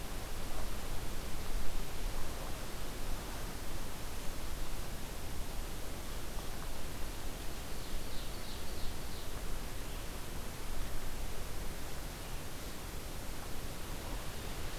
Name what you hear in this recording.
Ovenbird